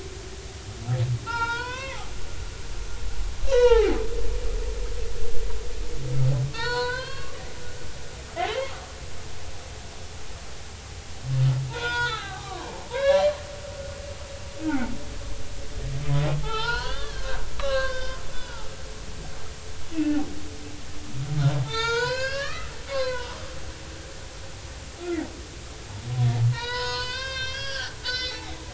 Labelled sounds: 1.3	2.9	humpback whale, 0.86 to 5.2 kHz
3.5	4.0	humpback whale, 0.80 to 4.5 kHz
6.5	7.4	humpback whale, 0.86 to 4.6 kHz
8.6	9.0	humpback whale, 0.83 to 1.4 kHz
11.7	13.3	humpback whale, 0.80 to 4.2 kHz
16.4	18.7	humpback whale, 0.80 to 5.3 kHz
19.9	20.3	humpback whale, 2.5 to 2.8 kHz
21.6	23.3	humpback whale, 0.83 to 6.6 kHz
26.5	28.4	humpback whale, 0.86 to 5.9 kHz

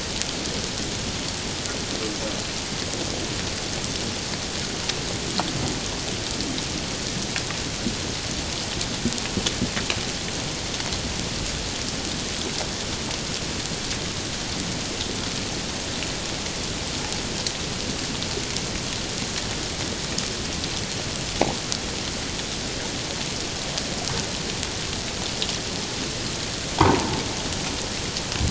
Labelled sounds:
26.8	27.1	humpback whale, 0.78 to 1.3 kHz

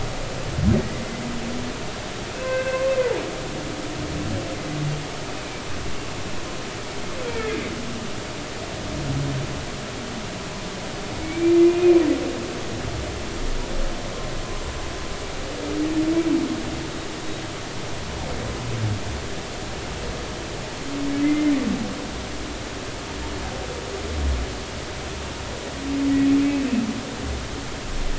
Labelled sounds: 0.8	1.0	humpback whale, 1.8 to 2.1 kHz
2.4	2.9	humpback whale, 0.99 to 2.7 kHz
5.3	5.5	humpback whale, 2.4 to 2.6 kHz
7.3	7.6	humpback whale, 2.0 to 2.4 kHz
11.2	12.0	humpback whale, 2.2 to 2.6 kHz
21.2	21.5	humpback whale, 2.0 to 2.1 kHz

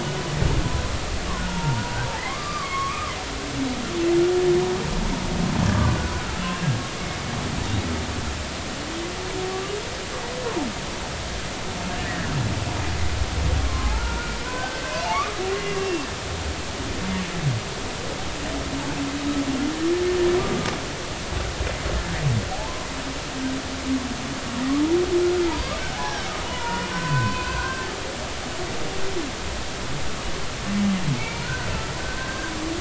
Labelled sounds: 1.4	1.8	humpback whale, 0.86 to 1.5 kHz
2.2	3.2	humpback whale, 0.99 to 2.3 kHz
6.2	6.5	humpback whale, 1.3 to 1.5 kHz
12.0	12.3	humpback whale, 1.6 to 2.0 kHz
13.6	14.8	humpback whale, 0.99 to 1.6 kHz
15.8	16.1	humpback whale, 2.7 to 2.8 kHz
20.4	20.8	humpback whale, 1.1 to 1.2 kHz
22.5	22.9	humpback whale, 0.80 to 1.1 kHz
25.2	27.9	humpback whale, 0.80 to 2.6 kHz
31.1	31.7	humpback whale, 1.4 to 2.4 kHz
32.0	32.5	humpback whale, 1.5 to 1.7 kHz

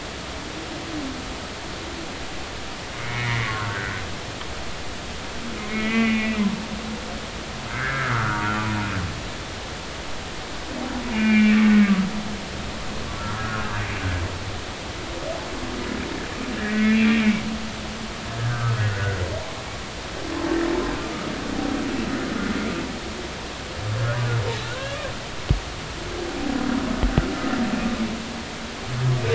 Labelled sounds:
3.0	4.0	humpback whale, 1.0 to 2.3 kHz
5.7	6.4	humpback whale, 1.9 to 3.0 kHz
7.7	8.5	humpback whale, 1.1 to 1.9 kHz
11.1	12.0	humpback whale, 1.1 to 2.9 kHz
13.3	13.8	humpback whale, 1.2 to 1.7 kHz
16.6	17.4	humpback whale, 1.6 to 2.5 kHz
18.4	19.6	humpback whale, 0.80 to 1.8 kHz
24.6	25.0	humpback whale, 1.3 to 1.7 kHz

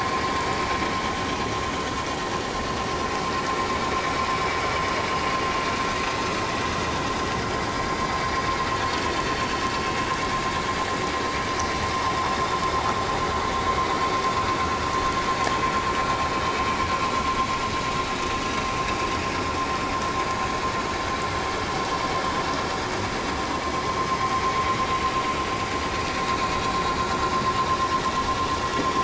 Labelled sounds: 9.1	9.4	vessel noise, 4.3 to 4.6 kHz

